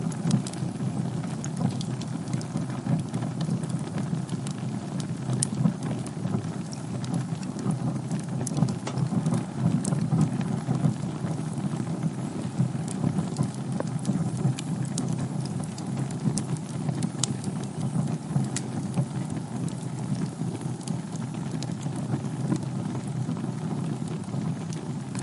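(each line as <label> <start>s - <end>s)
Fire crackling with wind blowing in the background. 0.0s - 25.1s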